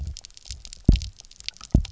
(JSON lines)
{"label": "biophony, double pulse", "recorder": "SoundTrap 300"}